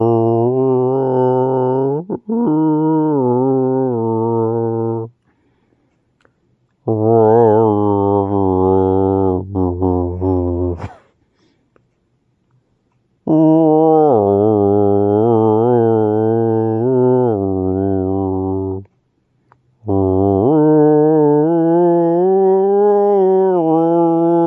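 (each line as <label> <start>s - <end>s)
A man humming into a microphone. 0.0s - 5.3s
A male voice hums poorly into the microphone, followed by light laughter, expressing frustration with the bad recording. 6.7s - 11.0s
A male voice is humming poorly into a microphone. 13.2s - 18.9s
A male voice is humming poorly into a microphone. 19.9s - 24.5s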